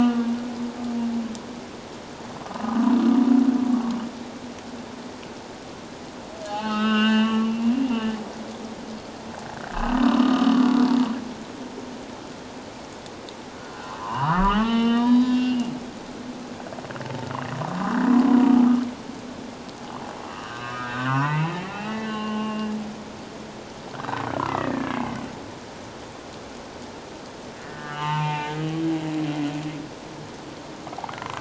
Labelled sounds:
2.5	2.8	humpback whale, 0.91 to 1.1 kHz
6.5	7.8	humpback whale, 0.78 to 4.4 kHz
9.7	10.8	humpback whale, 0.97 to 3.1 kHz
11.3	11.6	humpback whale, 2.1 to 2.4 kHz
13.6	15.7	humpback whale, 0.81 to 4.8 kHz
20.2	22.7	humpback whale, 0.88 to 4.0 kHz
23.9	25.2	humpback whale, 1.4 to 2.3 kHz
27.6	28.5	humpback whale, 0.84 to 3.1 kHz

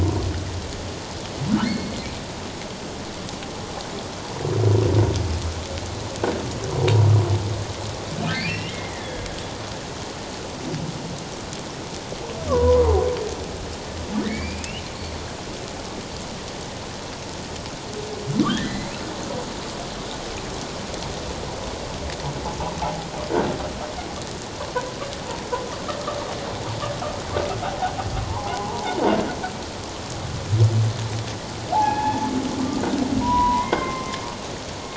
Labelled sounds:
1.6	2.0	humpback whale, 2.1 to 4.5 kHz
8.2	9.3	humpback whale, 1.5 to 5.6 kHz
12.5	12.8	humpback whale, 0.91 to 1.2 kHz
14.2	14.8	humpback whale, 1.7 to 4.9 kHz
18.5	18.9	humpback whale, 1.4 to 2.2 kHz
22.4	22.8	humpback whale, 0.78 to 1.0 kHz
27.7	28.9	humpback whale, 0.78 to 1.2 kHz
31.7	32.3	humpback whale, 0.78 to 3.5 kHz
33.2	34.2	humpback whale, 0.84 to 2.2 kHz

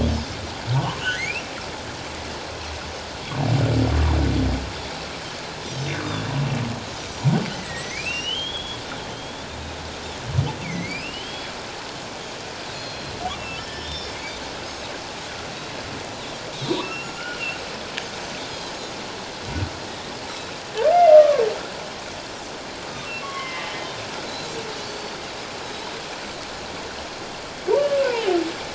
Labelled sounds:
0.7	1.5	humpback whale, 0.78 to 2.8 kHz
7.5	9.5	humpback whale, 1.8 to 3.6 kHz
7.6	8.3	Pacific white-sided dolphin, 3.6 to 8.0 kHz
10.6	11.5	humpback whale, 1.9 to 3.4 kHz
12.7	13.1	Pacific white-sided dolphin, 4.0 to 4.3 kHz
13.3	14.2	humpback whale, 1.7 to 5.5 kHz
15.5	17.2	Pacific white-sided dolphin, 3.5 to 7.1 kHz
16.8	17.5	humpback whale, 1.2 to 2.9 kHz
21.1	21.4	humpback whale, 1.0 to 1.3 kHz
23.2	23.7	humpback whale, 1.0 to 2.2 kHz
24.3	25.2	Pacific white-sided dolphin, 3.8 to 4.6 kHz

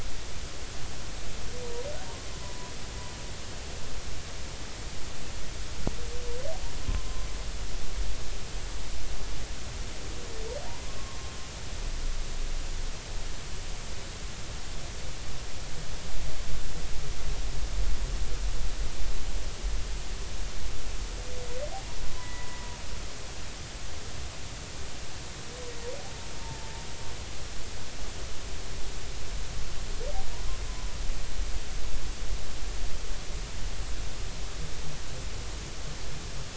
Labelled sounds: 2.3	2.7	humpback whale, 0.93 to 1.1 kHz
22.2	22.8	humpback whale, 0.93 to 2.0 kHz
26.4	26.7	humpback whale, 0.83 to 0.96 kHz
30.3	30.6	humpback whale, 0.90 to 1.1 kHz

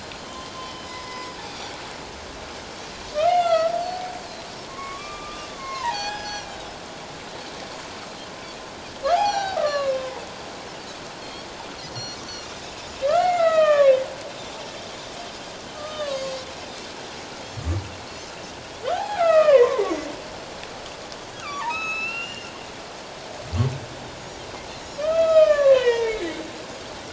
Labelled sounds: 0.0	0.3	Pacific white-sided dolphin, 4.1 to 4.2 kHz
0.5	1.3	humpback whale, 2.0 to 5.2 kHz
2.7	2.9	Pacific white-sided dolphin, 5.4 to 5.8 kHz
3.3	4.0	humpback whale, 1.2 to 5.0 kHz
4.7	6.6	humpback whale, 0.78 to 6.1 kHz
9.1	10.2	humpback whale, 0.78 to 4.1 kHz
11.2	12.5	Pacific white-sided dolphin, 4.2 to 6.1 kHz
13.1	14.0	humpback whale, 1.0 to 4.0 kHz
15.7	16.3	humpback whale, 1.0 to 3.8 kHz
16.1	16.4	Pacific white-sided dolphin, 4.1 to 4.8 kHz
18.9	19.8	humpback whale, 0.78 to 3.2 kHz
21.3	22.5	humpback whale, 0.84 to 5.3 kHz
24.7	25.0	Pacific white-sided dolphin, 3.8 to 4.3 kHz
25.0	26.4	humpback whale, 0.81 to 5.2 kHz
26.1	26.3	Pacific white-sided dolphin, 3.8 to 4.0 kHz

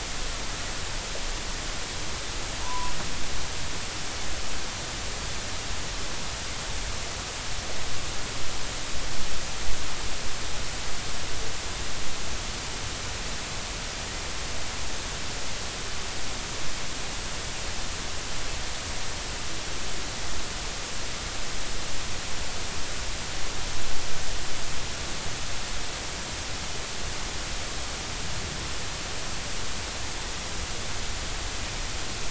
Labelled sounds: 2.6	2.9	humpback whale, 0.90 to 1.1 kHz

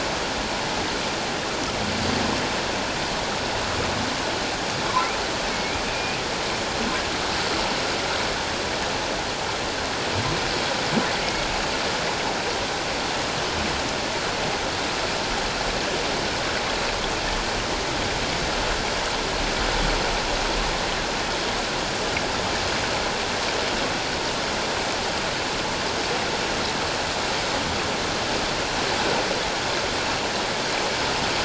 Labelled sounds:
5.5	6.2	humpback whale, 2.2 to 2.7 kHz

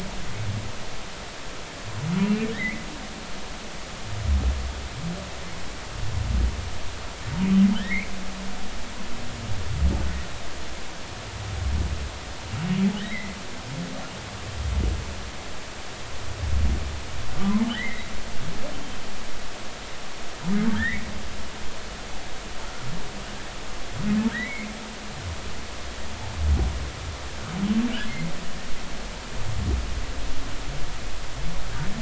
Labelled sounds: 2.5	2.9	humpback whale, 1.7 to 2.5 kHz
7.7	8.1	humpback whale, 1.4 to 2.6 kHz
14.0	14.4	humpback whale, 1.5 to 2.2 kHz
17.7	18.1	humpback whale, 1.4 to 2.2 kHz
20.7	21.0	humpback whale, 1.5 to 2.1 kHz
24.3	24.7	humpback whale, 1.8 to 2.3 kHz

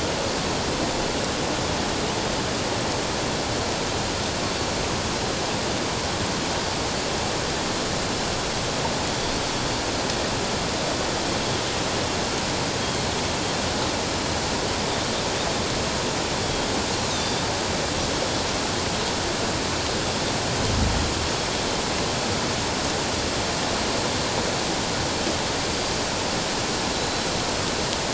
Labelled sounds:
16.4	17.4	Pacific white-sided dolphin, 3.2 to 4.8 kHz
26.9	27.3	Pacific white-sided dolphin, 3.9 to 4.1 kHz

